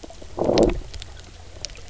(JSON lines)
{"label": "biophony, low growl", "recorder": "SoundTrap 300"}